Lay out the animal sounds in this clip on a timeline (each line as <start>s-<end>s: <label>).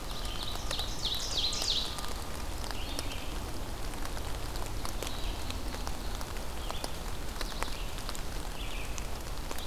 0.0s-2.0s: Ovenbird (Seiurus aurocapilla)
0.0s-9.7s: Red-eyed Vireo (Vireo olivaceus)